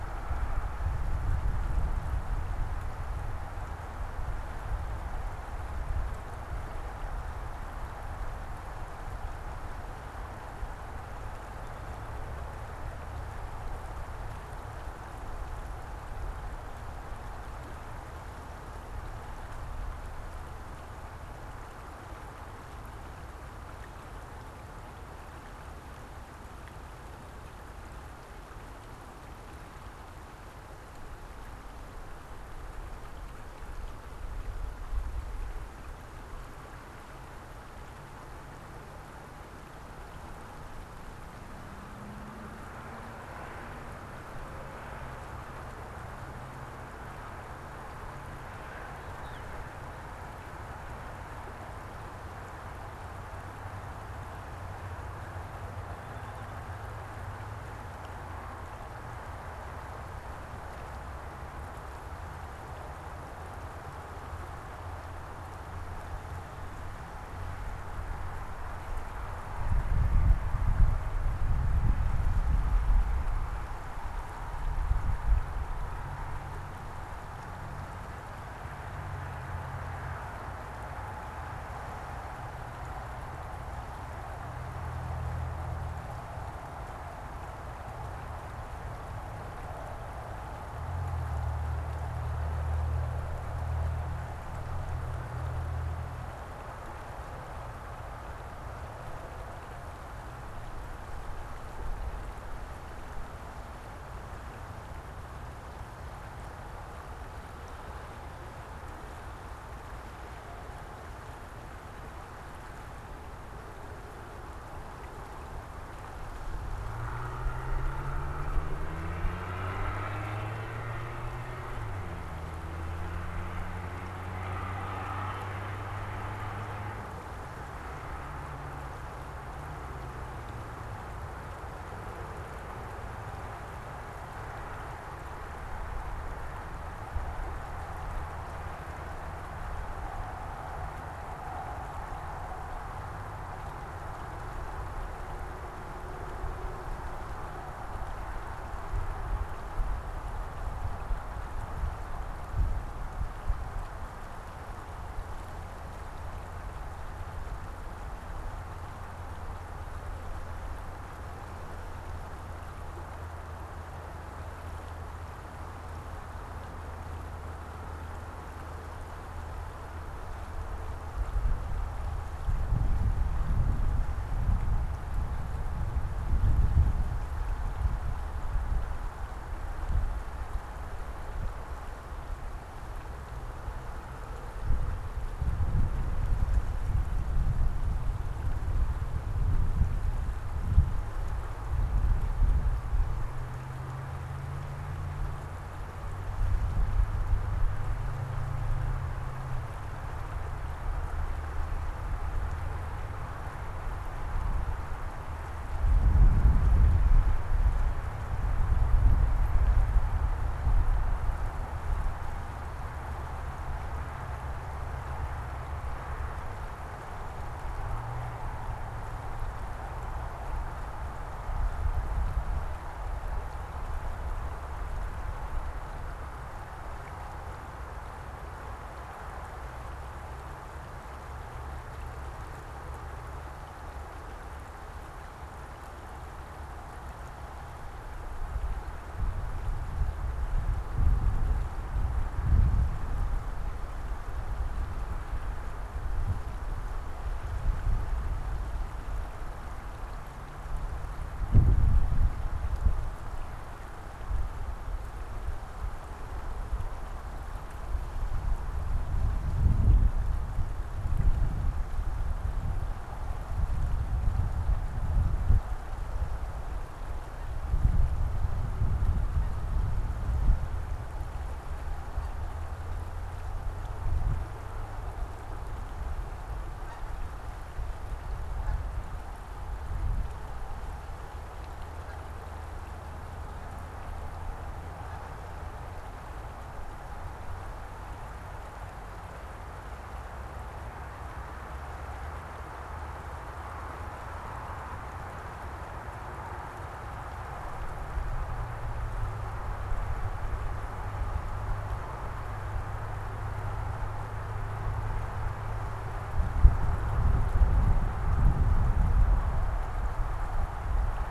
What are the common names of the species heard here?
unidentified bird, Canada Goose